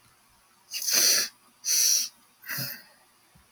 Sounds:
Sniff